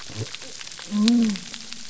{"label": "biophony", "recorder": "SoundTrap 300"}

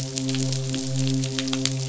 {"label": "biophony, midshipman", "recorder": "SoundTrap 500"}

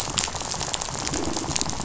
{"label": "biophony, rattle", "recorder": "SoundTrap 500"}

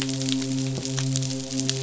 {"label": "biophony, midshipman", "recorder": "SoundTrap 500"}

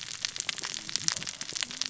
{"label": "biophony, cascading saw", "recorder": "SoundTrap 600 or HydroMoth"}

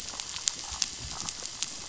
{"label": "biophony", "recorder": "SoundTrap 500"}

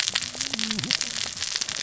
{"label": "biophony, cascading saw", "recorder": "SoundTrap 600 or HydroMoth"}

